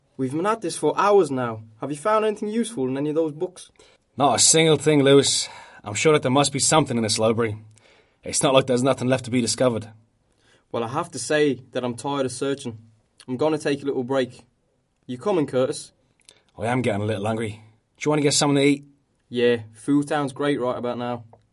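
0.1s A man is speaking. 3.7s
4.2s A man speaking in a strong dialect. 7.6s
8.3s A man is speaking. 10.0s
10.7s A man is speaking about being tired of searching and taking a break. 14.4s
15.1s A man is speaking. 15.9s
16.6s A man speaks, mentioning he is getting hungry and asking if someone wants to get something to eat. 18.9s
19.3s A man speaking about food. 21.3s

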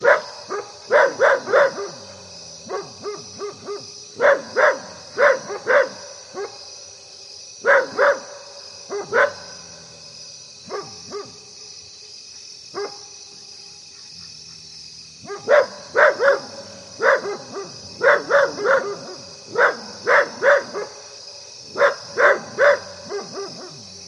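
0.0s A dog barks loudly. 2.4s
0.0s Cicadas and crickets chirping. 24.1s
0.3s A dog barks faintly in the distance. 0.8s
1.7s A dog barks faintly in the distance. 4.2s
4.1s A dog barks loudly. 6.1s
5.3s A dog barks faintly in the distance. 5.7s
6.3s A dog barks faintly in the distance. 6.9s
7.3s A dog barks loudly. 9.5s
8.8s A dog barks faintly in the distance. 9.1s
10.4s A dog barks faintly in the distance. 11.6s
12.5s A dog barks faintly in the distance. 13.2s
15.0s A dog barks repeatedly at irregular intervals. 24.1s
15.2s A dog barks faintly in the distance. 15.5s
17.2s A dog barks faintly in the distance. 17.9s
18.7s A dog barks faintly in the distance. 19.6s
20.7s A dog barks faintly in the distance. 21.5s
22.8s A dog barks faintly in the distance. 24.1s

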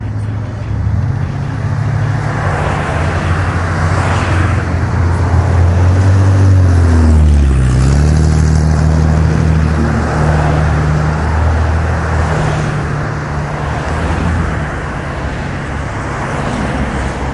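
0.0s Many cars and vehicles are passing by on a road. 17.3s

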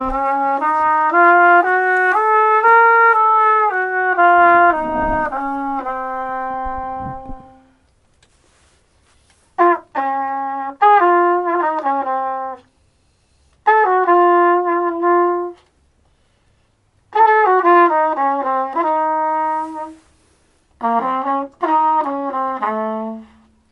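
0.0s A trumpet plays in a jazz style. 7.8s
9.5s A chord instrument is playing. 12.8s
9.5s A trumpet plays in a jazz style. 12.8s
13.6s A trumpet plays in a jazz style. 15.7s
17.1s A trumpet plays in a jazz style. 20.0s
20.8s A trumpet plays in a jazz style. 23.4s

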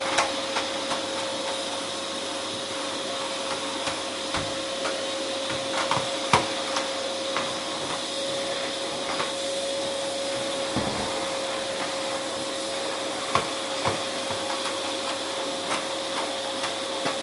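0.0s A vacuum cleaner runs indoors while being moved around during cleaning. 17.2s

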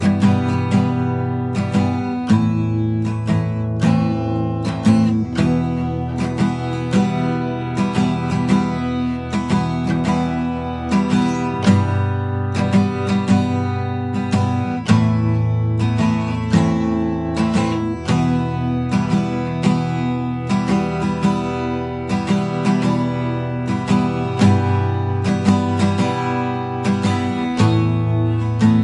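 0.0s A guitar plays a calm and clear song, repeatedly playing different chords. 28.8s

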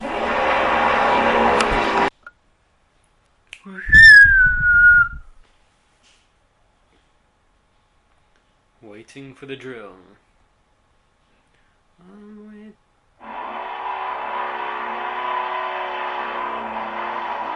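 0.0s A power drill produces a loud mechanical sound. 2.2s
2.5s A person whistles clearly indoors. 6.0s
8.8s Someone speaks briefly, then a power drill starts running indoors. 17.6s

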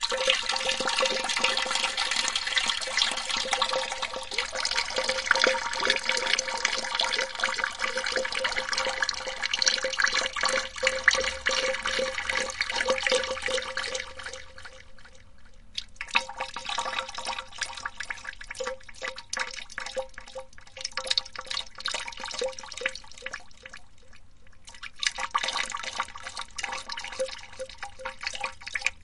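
0.0s Water pouring with slight echo. 29.0s

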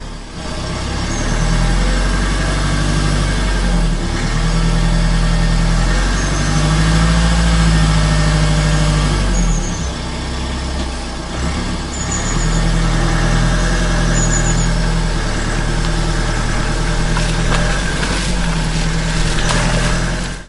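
0.0s A car engine vrooms loudly and repeatedly outside. 20.5s

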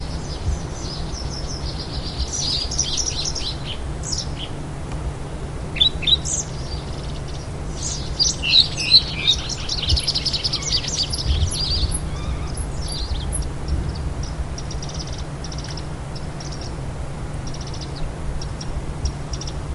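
0.0s Birds chirp with varying intensity and types in a forest during summer. 19.7s

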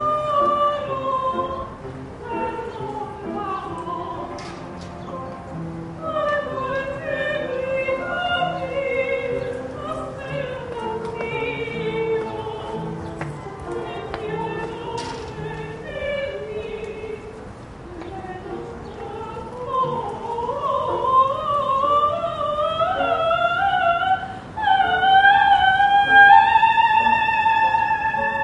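0.0s A female opera singer singing in a high voice. 28.4s
0.0s A piano plays short notes as musical accompaniment. 28.4s
0.0s Birds chirping in the background. 28.4s
4.3s People are walking. 19.7s

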